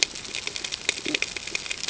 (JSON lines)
{"label": "ambient", "recorder": "HydroMoth"}